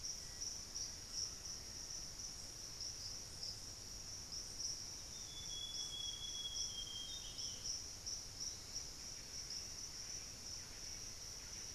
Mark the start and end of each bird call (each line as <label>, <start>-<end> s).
Black-faced Antthrush (Formicarius analis), 0.0-2.6 s
Amazonian Grosbeak (Cyanoloxia rothschildii), 5.0-7.8 s
unidentified bird, 8.2-8.9 s
Thrush-like Wren (Campylorhynchus turdinus), 8.3-11.7 s